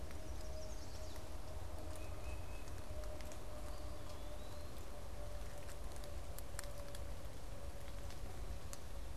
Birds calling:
Tufted Titmouse (Baeolophus bicolor), Eastern Wood-Pewee (Contopus virens), Chestnut-sided Warbler (Setophaga pensylvanica)

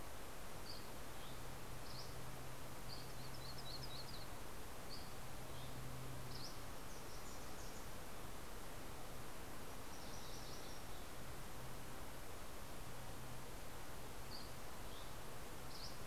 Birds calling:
Yellow-rumped Warbler (Setophaga coronata), Wilson's Warbler (Cardellina pusilla), Dusky Flycatcher (Empidonax oberholseri), MacGillivray's Warbler (Geothlypis tolmiei)

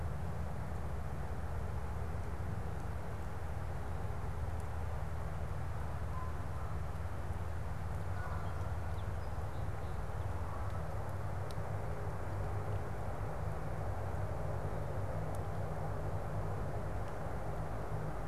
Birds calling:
Song Sparrow (Melospiza melodia), Canada Goose (Branta canadensis)

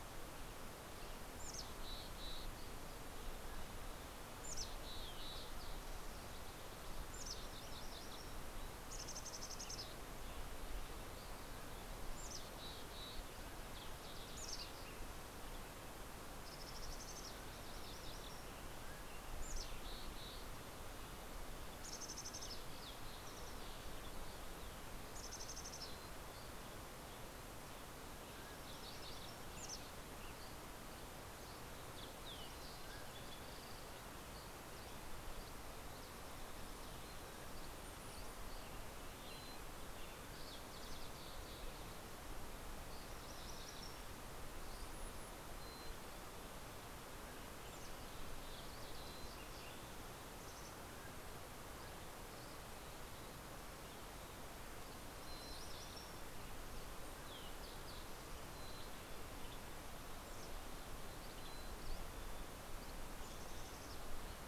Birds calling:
Green-tailed Towhee (Pipilo chlorurus), Mountain Chickadee (Poecile gambeli), MacGillivray's Warbler (Geothlypis tolmiei), Mountain Quail (Oreortyx pictus), Western Tanager (Piranga ludoviciana), Dusky Flycatcher (Empidonax oberholseri)

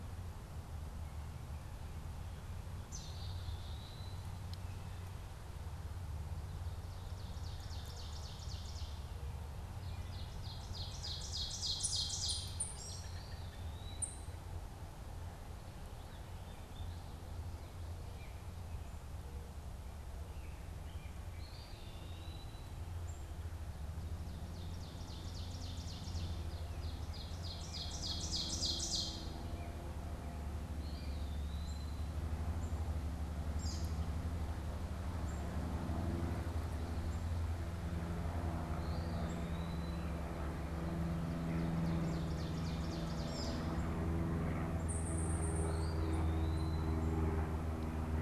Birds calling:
Black-capped Chickadee (Poecile atricapillus), unidentified bird, Ovenbird (Seiurus aurocapilla), Eastern Wood-Pewee (Contopus virens), American Robin (Turdus migratorius)

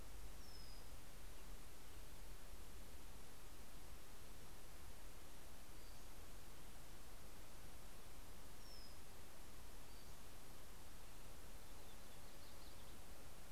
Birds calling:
Brown-headed Cowbird (Molothrus ater), Yellow-rumped Warbler (Setophaga coronata), Pacific-slope Flycatcher (Empidonax difficilis)

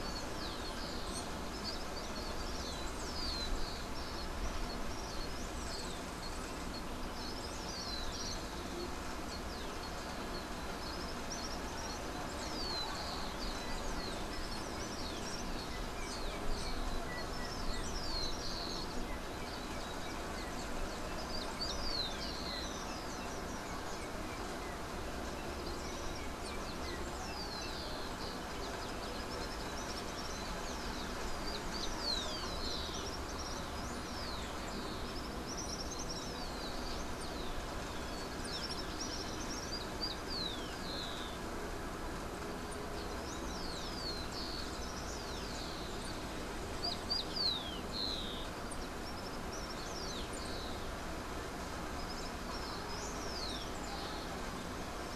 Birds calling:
Yellow-backed Oriole (Icterus chrysater), Rufous-collared Sparrow (Zonotrichia capensis), Yellow-faced Grassquit (Tiaris olivaceus)

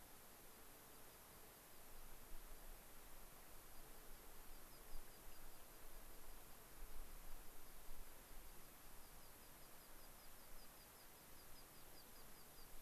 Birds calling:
American Pipit (Anthus rubescens)

